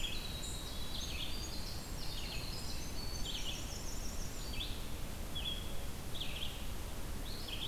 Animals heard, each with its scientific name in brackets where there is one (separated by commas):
Winter Wren (Troglodytes hiemalis), Red-eyed Vireo (Vireo olivaceus)